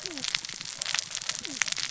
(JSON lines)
{"label": "biophony, cascading saw", "recorder": "SoundTrap 600 or HydroMoth"}